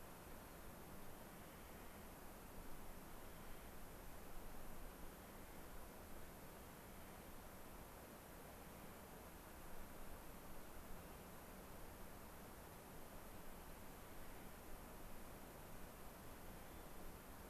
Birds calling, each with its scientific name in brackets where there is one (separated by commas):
unidentified bird, Clark's Nutcracker (Nucifraga columbiana)